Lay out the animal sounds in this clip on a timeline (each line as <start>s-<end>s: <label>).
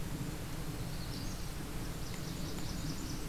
0.7s-1.5s: Magnolia Warbler (Setophaga magnolia)
1.7s-3.3s: Blackburnian Warbler (Setophaga fusca)